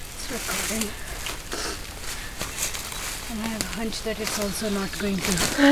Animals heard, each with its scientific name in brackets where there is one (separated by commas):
Ovenbird (Seiurus aurocapilla)